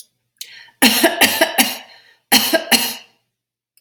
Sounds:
Cough